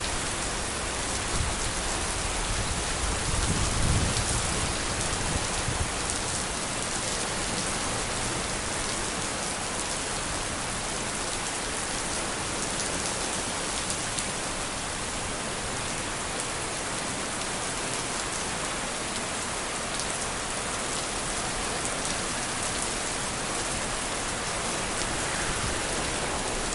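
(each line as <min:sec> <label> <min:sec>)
0:00.0 Thunder rumbles muffled in the distance. 0:26.7
0:00.0 Heavy rain falling loudly outdoors. 0:26.7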